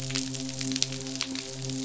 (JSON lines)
{"label": "biophony, midshipman", "recorder": "SoundTrap 500"}